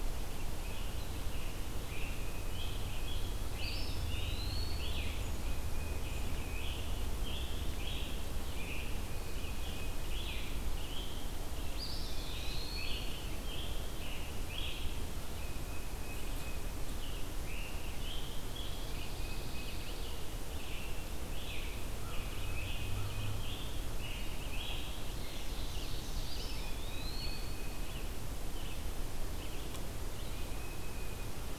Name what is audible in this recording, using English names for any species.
Red-eyed Vireo, Scarlet Tanager, Eastern Wood-Pewee, Tufted Titmouse, Pine Warbler, Ovenbird